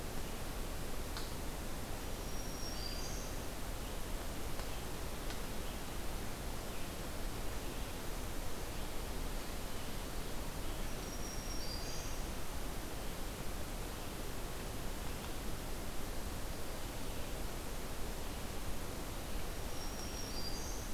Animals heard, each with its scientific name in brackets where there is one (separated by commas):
Black-throated Green Warbler (Setophaga virens)